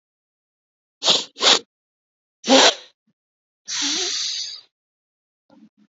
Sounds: Sniff